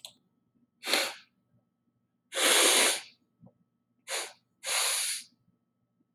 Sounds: Sniff